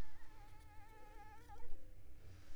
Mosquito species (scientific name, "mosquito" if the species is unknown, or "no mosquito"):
Culex pipiens complex